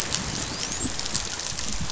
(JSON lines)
{"label": "biophony, dolphin", "recorder": "SoundTrap 500"}